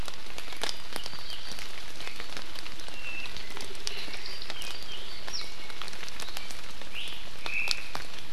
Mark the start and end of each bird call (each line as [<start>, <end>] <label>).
[2.91, 3.61] Apapane (Himatione sanguinea)
[6.91, 7.11] Iiwi (Drepanis coccinea)
[7.41, 7.91] Omao (Myadestes obscurus)